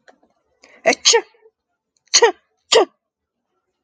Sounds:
Sneeze